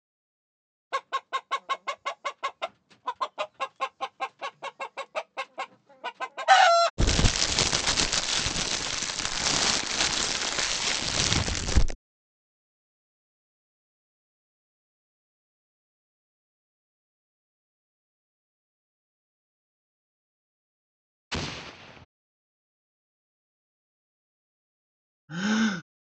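First, a chicken can be heard. After that, crackling is audible. Next, there is an explosion. Later, someone gasps.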